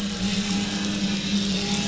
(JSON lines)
{"label": "anthrophony, boat engine", "recorder": "SoundTrap 500"}